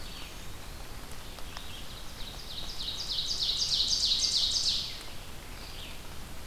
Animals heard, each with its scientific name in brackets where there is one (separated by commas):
Eastern Wood-Pewee (Contopus virens), Ovenbird (Seiurus aurocapilla), Red-eyed Vireo (Vireo olivaceus)